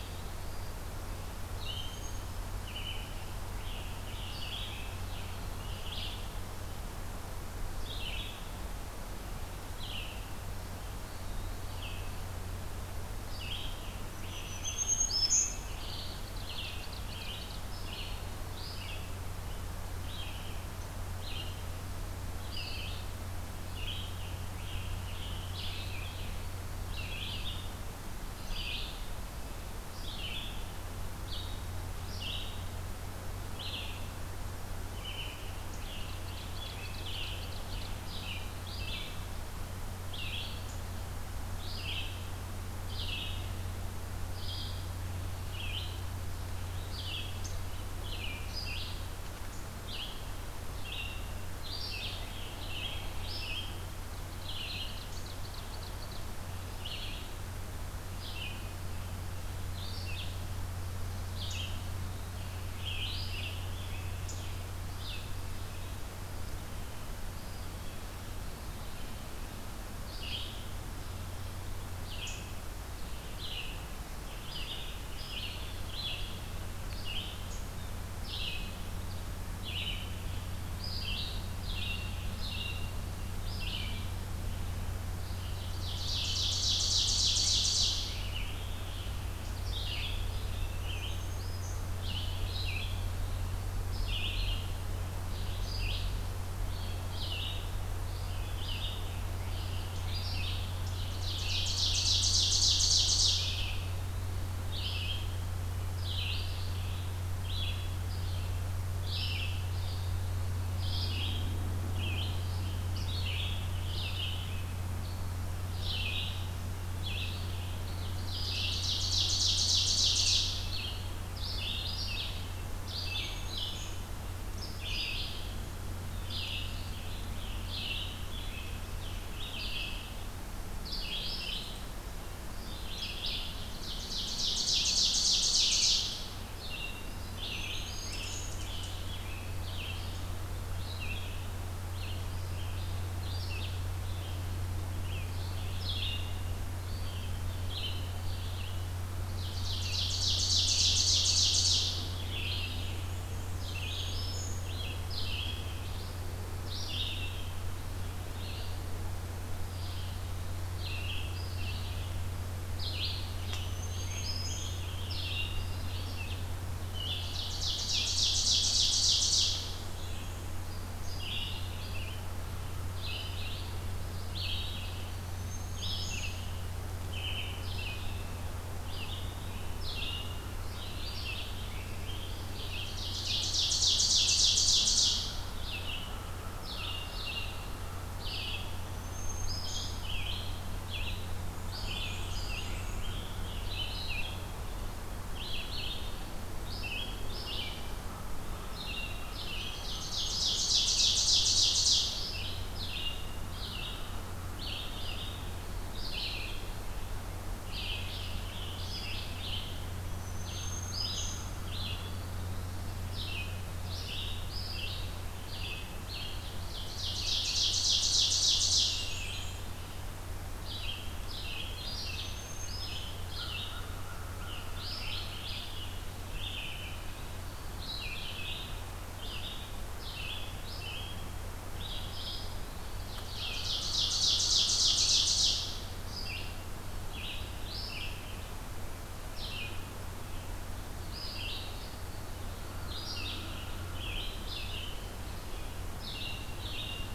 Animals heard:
Ovenbird (Seiurus aurocapilla), Black-throated Green Warbler (Setophaga virens), American Crow (Corvus brachyrhynchos), Black-and-white Warbler (Mniotilta varia), Eastern Wood-Pewee (Contopus virens), Red-eyed Vireo (Vireo olivaceus), Scarlet Tanager (Piranga olivacea)

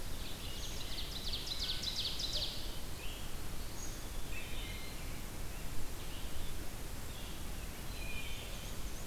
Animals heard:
Wood Thrush (Hylocichla mustelina), Black-and-white Warbler (Mniotilta varia), Ovenbird (Seiurus aurocapilla), Red-eyed Vireo (Vireo olivaceus), Eastern Wood-Pewee (Contopus virens)

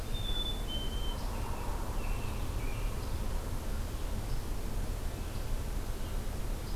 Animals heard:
Red-eyed Vireo (Vireo olivaceus), Black-capped Chickadee (Poecile atricapillus), Hairy Woodpecker (Dryobates villosus), American Robin (Turdus migratorius)

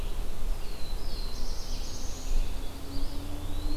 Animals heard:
Black-throated Blue Warbler (Setophaga caerulescens), Pine Warbler (Setophaga pinus), Ovenbird (Seiurus aurocapilla), Eastern Wood-Pewee (Contopus virens)

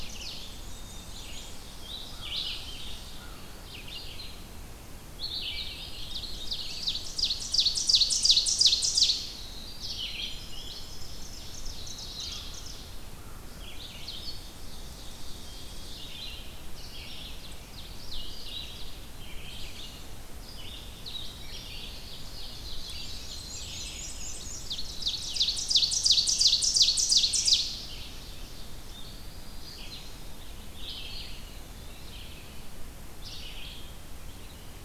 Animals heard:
American Crow (Corvus brachyrhynchos), Tennessee Warbler (Leiothlypis peregrina), Red-eyed Vireo (Vireo olivaceus), Winter Wren (Troglodytes hiemalis), Eastern Wood-Pewee (Contopus virens), Ovenbird (Seiurus aurocapilla), Black-throated Blue Warbler (Setophaga caerulescens), Black-capped Chickadee (Poecile atricapillus), Black-and-white Warbler (Mniotilta varia)

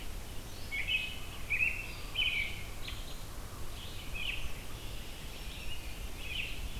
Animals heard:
Black-throated Green Warbler (Setophaga virens), Red-eyed Vireo (Vireo olivaceus), American Robin (Turdus migratorius), Red-winged Blackbird (Agelaius phoeniceus)

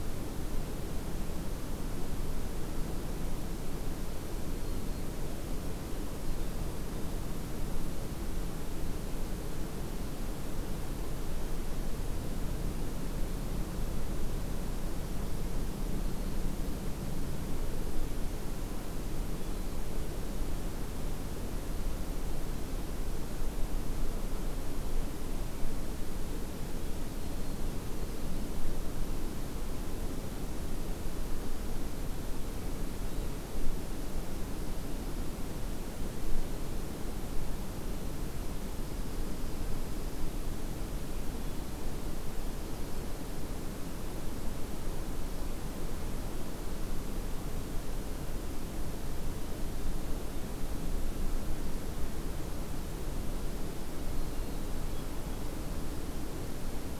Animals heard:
Black-throated Green Warbler (Setophaga virens), Dark-eyed Junco (Junco hyemalis), Hermit Thrush (Catharus guttatus)

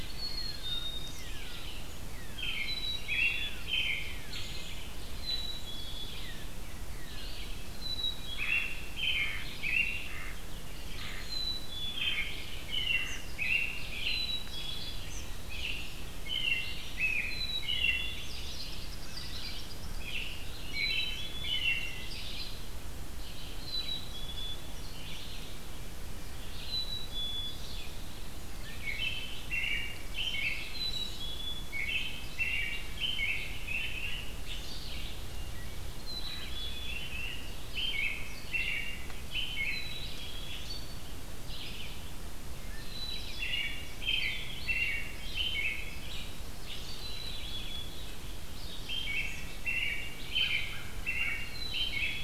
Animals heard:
American Robin (Turdus migratorius), Red-eyed Vireo (Vireo olivaceus), Eastern Kingbird (Tyrannus tyrannus), unidentified call, Black-capped Chickadee (Poecile atricapillus), Wood Thrush (Hylocichla mustelina), Mallard (Anas platyrhynchos)

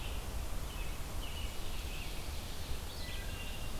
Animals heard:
American Robin (Turdus migratorius), Wood Thrush (Hylocichla mustelina), Red-eyed Vireo (Vireo olivaceus)

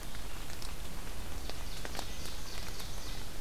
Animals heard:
Red-breasted Nuthatch (Sitta canadensis), Ovenbird (Seiurus aurocapilla), Red-eyed Vireo (Vireo olivaceus)

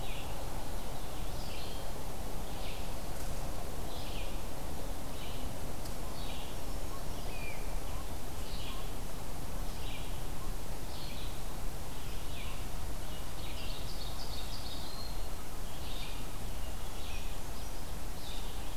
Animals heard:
Ovenbird (Seiurus aurocapilla), Red-eyed Vireo (Vireo olivaceus), Great Crested Flycatcher (Myiarchus crinitus), Brown Creeper (Certhia americana)

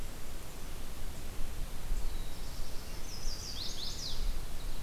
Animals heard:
Chestnut-sided Warbler (Setophaga pensylvanica), Black-throated Blue Warbler (Setophaga caerulescens)

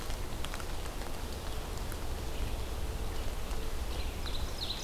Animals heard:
Ovenbird (Seiurus aurocapilla), Red-eyed Vireo (Vireo olivaceus)

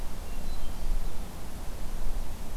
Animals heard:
Hermit Thrush (Catharus guttatus)

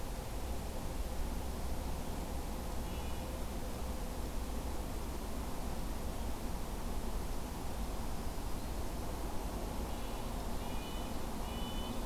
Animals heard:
Black-throated Green Warbler (Setophaga virens), Red-breasted Nuthatch (Sitta canadensis)

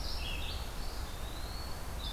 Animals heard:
Eastern Wood-Pewee (Contopus virens), Red-eyed Vireo (Vireo olivaceus)

